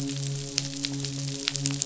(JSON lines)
{"label": "biophony, midshipman", "recorder": "SoundTrap 500"}